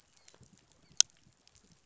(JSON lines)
{"label": "biophony, dolphin", "recorder": "SoundTrap 500"}